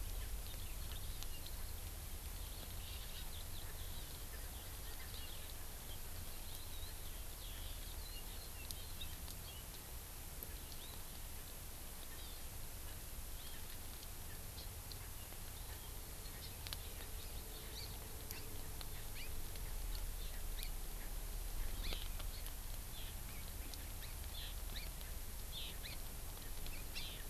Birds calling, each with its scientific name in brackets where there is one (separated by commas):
House Finch (Haemorhous mexicanus), Hawaii Amakihi (Chlorodrepanis virens), Eurasian Skylark (Alauda arvensis)